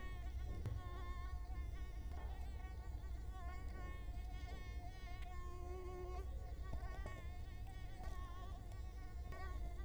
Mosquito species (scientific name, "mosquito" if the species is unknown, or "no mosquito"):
Culex quinquefasciatus